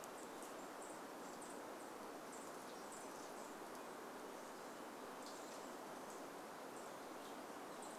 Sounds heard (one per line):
Chestnut-backed Chickadee call
unidentified bird chip note
unidentified sound
Red-breasted Nuthatch song